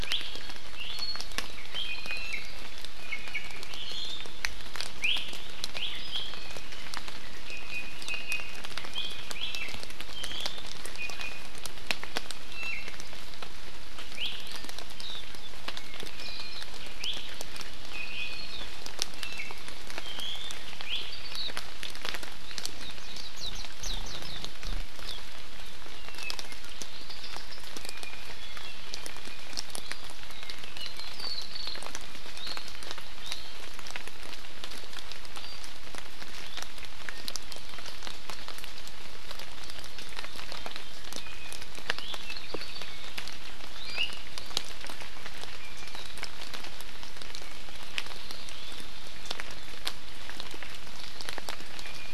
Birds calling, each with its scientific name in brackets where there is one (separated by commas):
Apapane (Himatione sanguinea), Warbling White-eye (Zosterops japonicus), Iiwi (Drepanis coccinea)